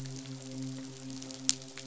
{"label": "biophony, midshipman", "recorder": "SoundTrap 500"}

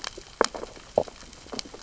{"label": "biophony, sea urchins (Echinidae)", "recorder": "SoundTrap 600 or HydroMoth"}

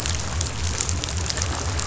{"label": "biophony", "recorder": "SoundTrap 500"}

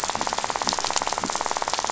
{"label": "biophony, rattle", "recorder": "SoundTrap 500"}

